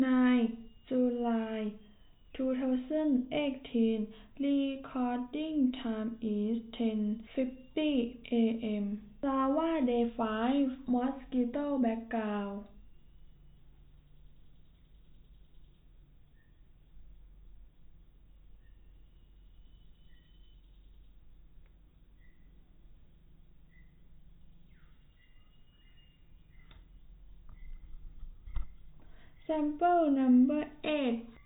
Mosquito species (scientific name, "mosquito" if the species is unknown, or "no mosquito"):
no mosquito